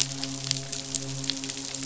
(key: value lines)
label: biophony, midshipman
recorder: SoundTrap 500